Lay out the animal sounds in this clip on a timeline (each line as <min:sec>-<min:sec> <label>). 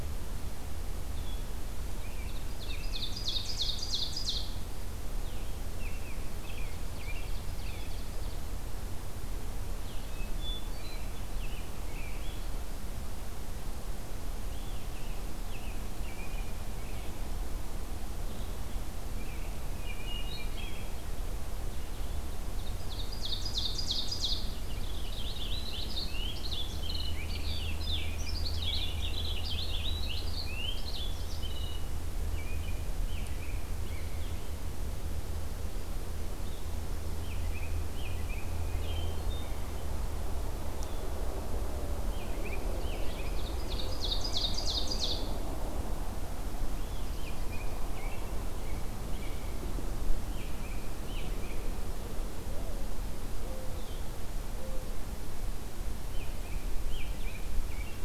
0:00.0-0:14.9 Blue-headed Vireo (Vireo solitarius)
0:01.9-0:03.7 American Robin (Turdus migratorius)
0:02.0-0:04.6 Ovenbird (Seiurus aurocapilla)
0:05.8-0:07.9 American Robin (Turdus migratorius)
0:06.4-0:08.4 Ovenbird (Seiurus aurocapilla)
0:10.0-0:11.0 Hermit Thrush (Catharus guttatus)
0:10.6-0:12.5 American Robin (Turdus migratorius)
0:14.9-0:17.2 American Robin (Turdus migratorius)
0:19.1-0:21.1 American Robin (Turdus migratorius)
0:19.8-0:21.0 Hermit Thrush (Catharus guttatus)
0:22.4-0:24.6 Ovenbird (Seiurus aurocapilla)
0:24.5-0:31.9 Purple Finch (Haemorhous purpureus)
0:32.3-0:34.3 American Robin (Turdus migratorius)
0:37.2-0:39.2 American Robin (Turdus migratorius)
0:39.0-0:39.9 Hermit Thrush (Catharus guttatus)
0:42.1-0:44.0 American Robin (Turdus migratorius)
0:42.3-0:45.3 Ovenbird (Seiurus aurocapilla)
0:46.9-0:49.7 American Robin (Turdus migratorius)
0:50.2-0:51.7 American Robin (Turdus migratorius)
0:52.4-0:54.9 Mourning Dove (Zenaida macroura)
0:53.7-0:54.1 Blue-headed Vireo (Vireo solitarius)
0:56.1-0:58.0 American Robin (Turdus migratorius)